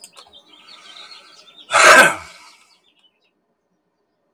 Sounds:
Sneeze